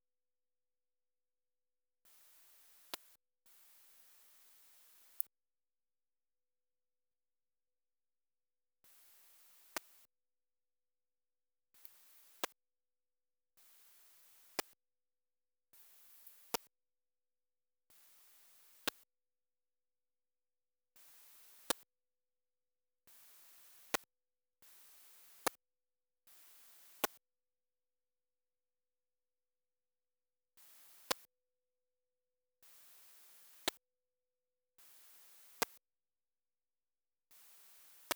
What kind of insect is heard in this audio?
orthopteran